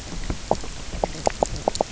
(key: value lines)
label: biophony, knock croak
recorder: SoundTrap 300